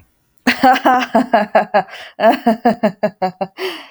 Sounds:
Laughter